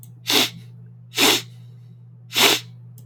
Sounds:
Sniff